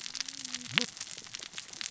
{"label": "biophony, cascading saw", "recorder": "SoundTrap 600 or HydroMoth"}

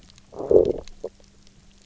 {"label": "biophony, low growl", "recorder": "SoundTrap 300"}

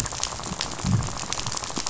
{"label": "biophony, rattle", "recorder": "SoundTrap 500"}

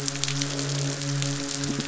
{"label": "biophony", "recorder": "SoundTrap 500"}
{"label": "biophony, midshipman", "recorder": "SoundTrap 500"}
{"label": "biophony, croak", "recorder": "SoundTrap 500"}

